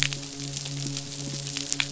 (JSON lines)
{"label": "biophony", "recorder": "SoundTrap 500"}
{"label": "biophony, midshipman", "recorder": "SoundTrap 500"}